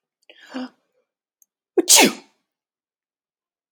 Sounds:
Sneeze